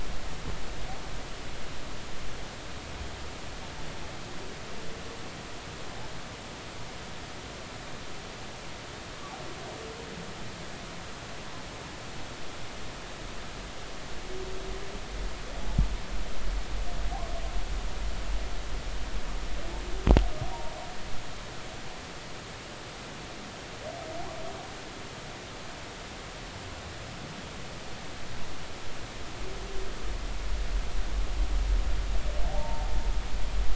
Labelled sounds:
32.5	32.9	humpback whale, 0.80 to 0.96 kHz

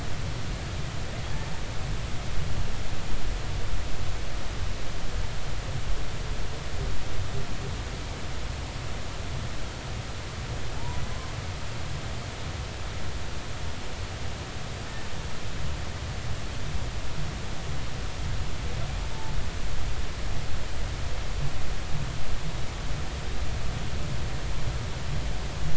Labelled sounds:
10.8	11.0	humpback whale, 0.83 to 1.0 kHz

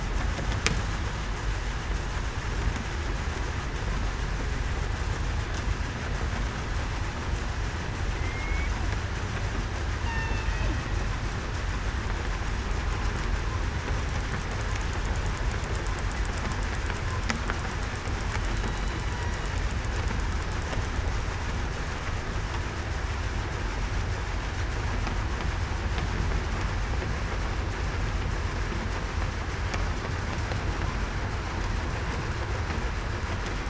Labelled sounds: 8.1	8.7	killer whale, southern resident, 2.0 to 2.4 kHz
10.0	10.5	killer whale, southern resident, 2.6 to 4.5 kHz
18.5	19.0	killer whale, southern resident, 3.8 to 4.0 kHz

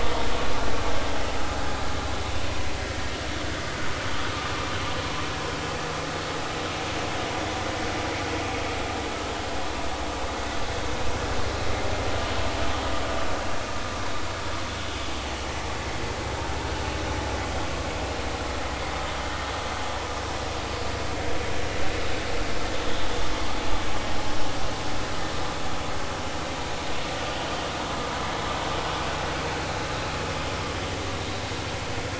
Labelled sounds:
17.5	17.7	vessel noise, 3.1 to 3.3 kHz

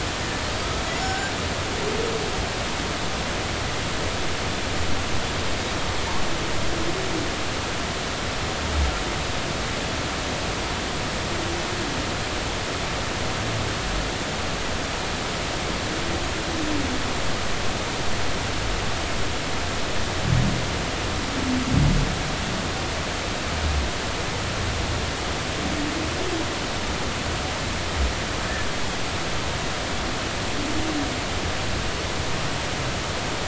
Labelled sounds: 0.9	1.3	humpback whale, 1.5 to 7.0 kHz

